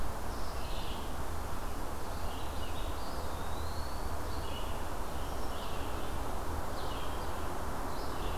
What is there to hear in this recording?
Red-eyed Vireo, Eastern Wood-Pewee